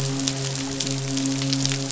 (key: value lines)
label: biophony, midshipman
recorder: SoundTrap 500